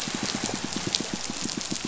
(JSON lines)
{"label": "biophony, pulse", "recorder": "SoundTrap 500"}